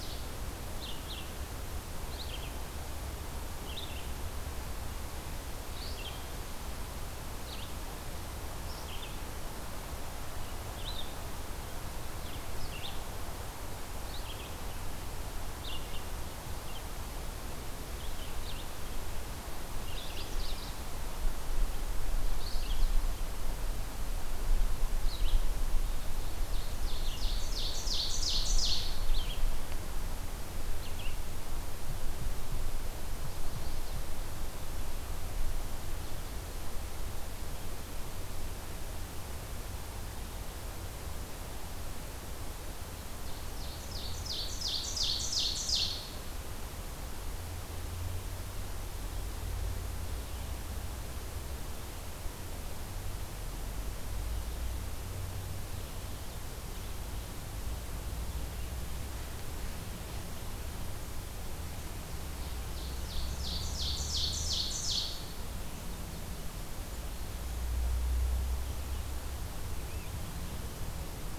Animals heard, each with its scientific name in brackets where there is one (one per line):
Chestnut-sided Warbler (Setophaga pensylvanica)
Ovenbird (Seiurus aurocapilla)
Magnolia Warbler (Setophaga magnolia)
Red-eyed Vireo (Vireo olivaceus)